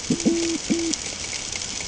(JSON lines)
{"label": "ambient", "recorder": "HydroMoth"}